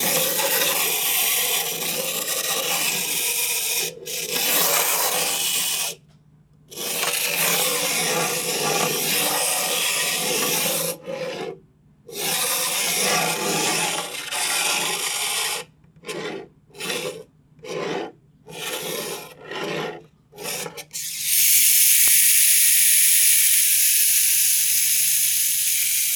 Is there a sound of peoples voices?
no